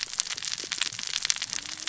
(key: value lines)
label: biophony, cascading saw
recorder: SoundTrap 600 or HydroMoth